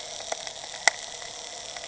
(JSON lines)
{"label": "anthrophony, boat engine", "recorder": "HydroMoth"}